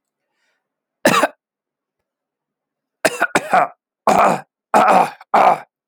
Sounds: Throat clearing